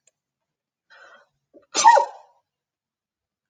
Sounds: Sneeze